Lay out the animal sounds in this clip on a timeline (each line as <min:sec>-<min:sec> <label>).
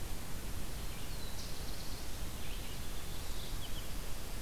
0:00.0-0:04.4 Red-eyed Vireo (Vireo olivaceus)
0:00.9-0:02.3 Black-throated Blue Warbler (Setophaga caerulescens)
0:02.8-0:04.0 Mourning Warbler (Geothlypis philadelphia)